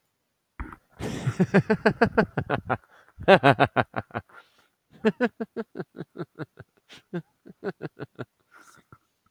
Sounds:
Laughter